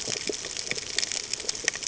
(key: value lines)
label: ambient
recorder: HydroMoth